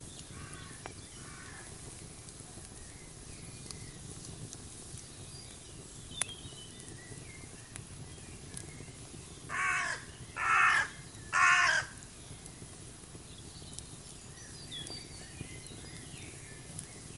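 The crackle of burning wood with the background sound of a crow flying by. 0.0 - 9.5
A crow is shouting. 9.5 - 12.0
Wood burning with birds chirping in the background. 12.1 - 17.2

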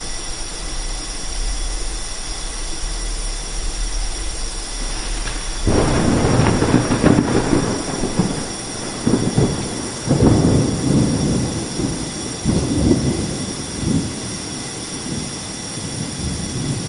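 A bell is ringing loudly. 0.0 - 16.9
Thunder rumbles during a thunderstorm. 0.0 - 16.9
A bell rings loudly and repeatedly in the background. 5.5 - 14.2
Unpredictable thunderclaps from a thunderstorm. 5.5 - 14.2

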